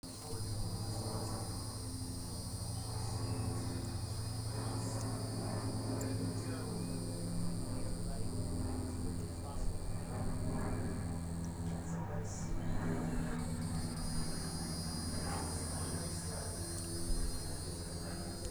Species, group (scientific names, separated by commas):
Neocicada hieroglyphica, Cicadidae